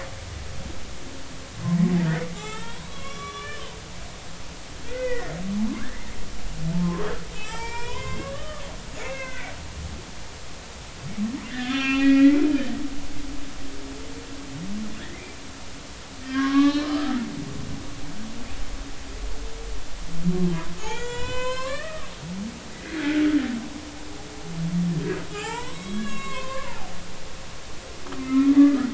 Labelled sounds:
2.3	3.6	humpback whale, 0.80 to 5.8 kHz
4.9	6.1	humpback whale, 0.80 to 2.1 kHz
7.3	9.5	humpback whale, 0.83 to 8.0 kHz
11.5	12.7	humpback whale, 1.0 to 4.7 kHz
15.0	15.3	humpback whale, 1.5 to 2.2 kHz
16.2	17.8	humpback whale, 0.80 to 3.8 kHz
20.8	22.1	humpback whale, 0.93 to 7.8 kHz
22.9	23.3	humpback whale, 1.4 to 1.8 kHz
25.3	28.0	humpback whale, 0.80 to 7.8 kHz
28.2	28.9	humpback whale, 1.1 to 2.2 kHz

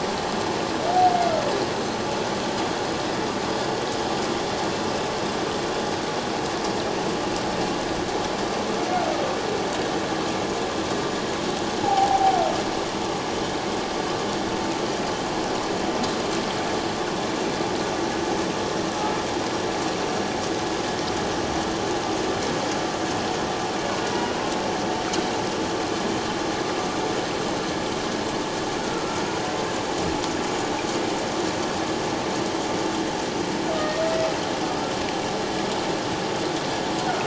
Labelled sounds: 11.8	12.4	humpback whale, 0.78 to 0.94 kHz
28.9	29.2	humpback whale, 1.3 to 1.4 kHz

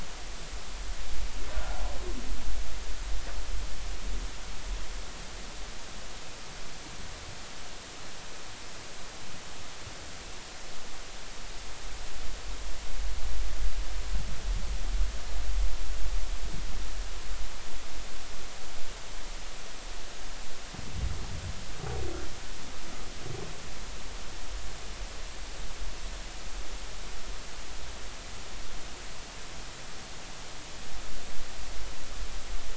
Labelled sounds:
1.6	1.8	humpback whale, 1.3 to 1.4 kHz

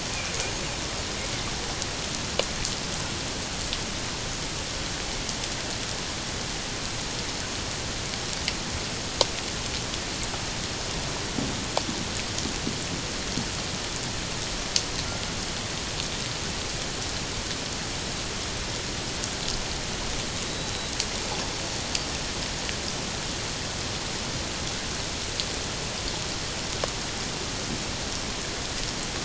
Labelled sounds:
20.4	20.9	killer whale, 3.8 to 4.0 kHz

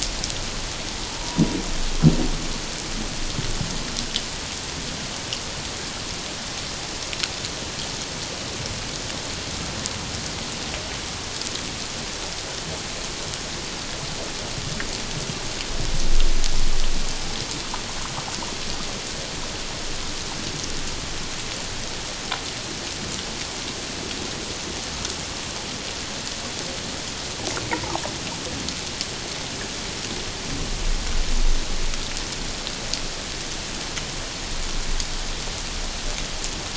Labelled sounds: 1.2	1.4	humpback whale, 0.88 to 1.0 kHz
27.7	28.0	humpback whale, 0.78 to 1.3 kHz

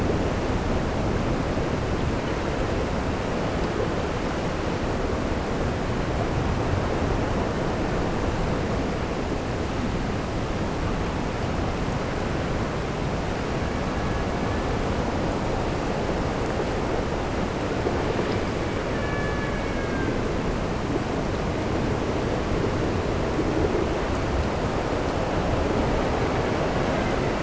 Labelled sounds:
13.5	14.9	killer whale, Bigg's (transient), AT1 transient, 1.0 to 4.1 kHz
18.9	20.3	killer whale, Bigg's (transient), AT1 transient, 0.89 to 3.6 kHz
26.2	27.4	killer whale, Bigg's (transient), AT1 transient, 1.2 to 3.1 kHz

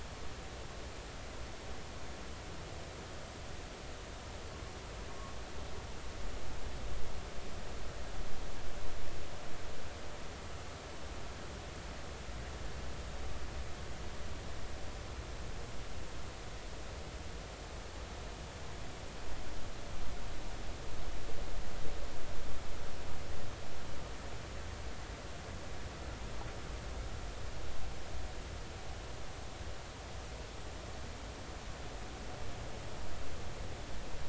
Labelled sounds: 5.1	5.4	vessel noise, 1.0 to 1.2 kHz

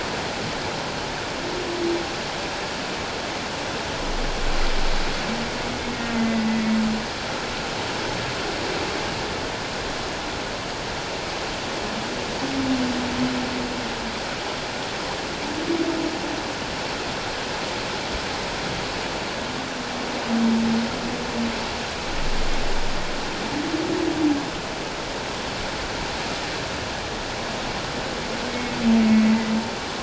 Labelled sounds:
6.2	6.5	humpback whale, 1.9 to 2.1 kHz
28.5	28.7	humpback whale, 2.1 to 2.2 kHz

